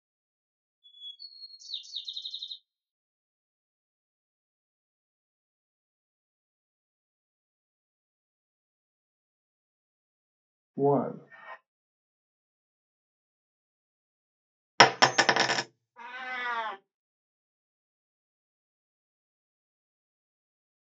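First, at the start, bird vocalization can be heard. Later, about 11 seconds in, someone says "one". Next, about 15 seconds in, a coin drops loudly, and about 16 seconds in, a cat meows.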